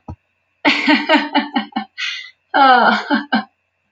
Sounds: Laughter